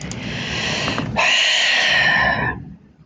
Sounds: Sigh